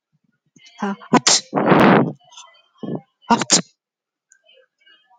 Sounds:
Sneeze